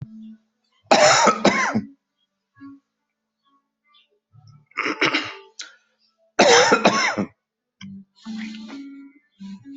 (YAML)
expert_labels:
- quality: ok
  cough_type: dry
  dyspnea: false
  wheezing: false
  stridor: false
  choking: false
  congestion: false
  nothing: true
  diagnosis: COVID-19
  severity: mild
- quality: ok
  cough_type: dry
  dyspnea: false
  wheezing: false
  stridor: false
  choking: false
  congestion: false
  nothing: true
  diagnosis: upper respiratory tract infection
  severity: mild
- quality: good
  cough_type: wet
  dyspnea: false
  wheezing: false
  stridor: false
  choking: false
  congestion: false
  nothing: true
  diagnosis: upper respiratory tract infection
  severity: mild
- quality: good
  cough_type: dry
  dyspnea: false
  wheezing: false
  stridor: false
  choking: false
  congestion: true
  nothing: false
  diagnosis: upper respiratory tract infection
  severity: mild
age: 55
gender: male
respiratory_condition: false
fever_muscle_pain: false
status: COVID-19